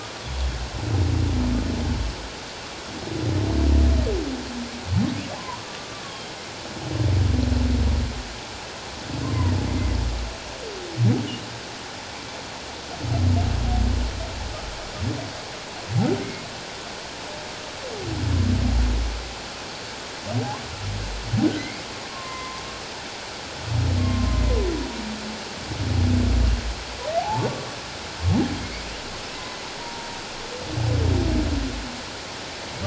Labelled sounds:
5.4	6.0	humpback whale, 0.84 to 1.2 kHz
20.4	20.6	humpback whale, 0.78 to 1.2 kHz
21.6	22.6	humpback whale, 0.94 to 2.2 kHz
24.0	24.4	humpback whale, 1.0 to 1.1 kHz
27.2	27.5	humpback whale, 0.78 to 0.97 kHz
29.3	30.2	humpback whale, 0.88 to 2.1 kHz

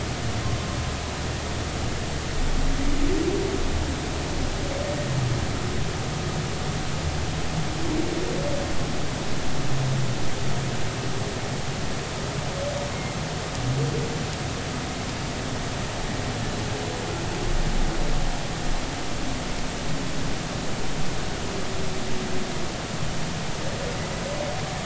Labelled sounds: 12.9	13.2	humpback whale, 2.1 to 2.2 kHz

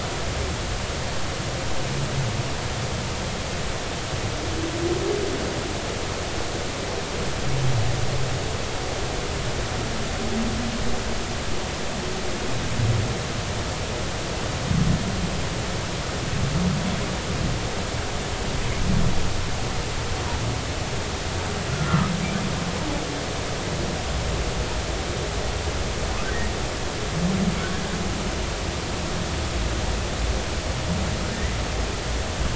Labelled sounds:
21.9	22.1	humpback whale, 1.2 to 1.4 kHz

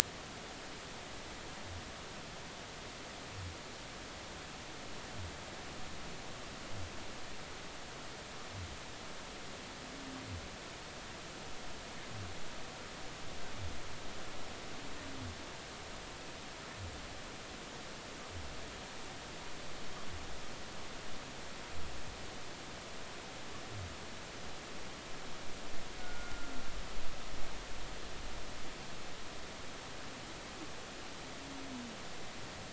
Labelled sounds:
26.0	26.5	humpback whale, 1.3 to 1.5 kHz

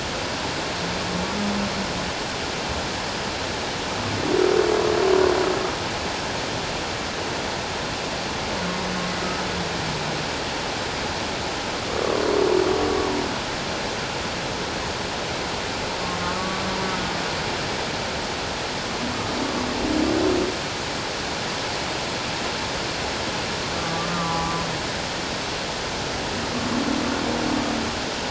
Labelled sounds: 16.4	16.6	humpback whale, 1.1 to 1.2 kHz
23.8	24.6	humpback whale, 0.78 to 1.2 kHz

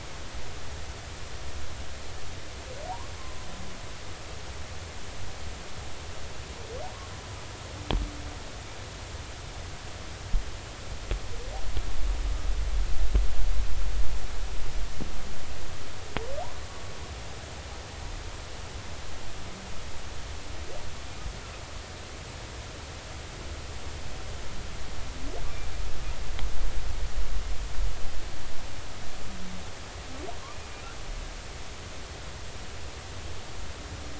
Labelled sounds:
2.9	3.4	humpback whale, 0.80 to 1.1 kHz

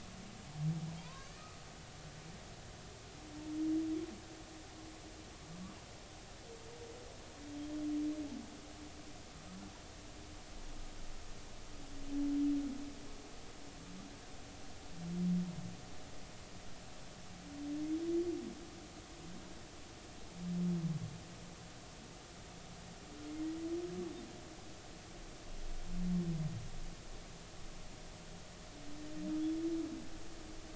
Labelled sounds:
1.0	1.3	humpback whale, 0.90 to 1.1 kHz

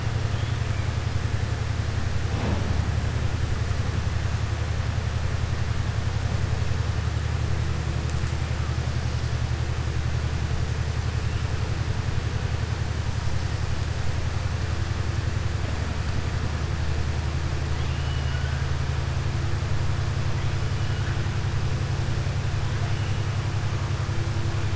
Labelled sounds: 17.7	18.6	killer whale, southern resident, 1.5 to 3.7 kHz

